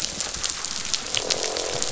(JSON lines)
{"label": "biophony, croak", "recorder": "SoundTrap 500"}